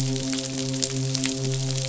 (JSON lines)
{"label": "biophony, midshipman", "recorder": "SoundTrap 500"}